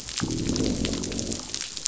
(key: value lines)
label: biophony, growl
recorder: SoundTrap 500